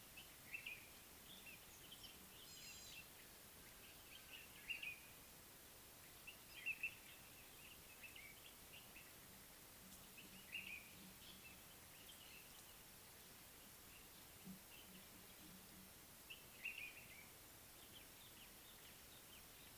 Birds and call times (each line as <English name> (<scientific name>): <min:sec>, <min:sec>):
Gray-backed Camaroptera (Camaroptera brevicaudata): 0:02.7
Common Bulbul (Pycnonotus barbatus): 0:06.7, 0:16.7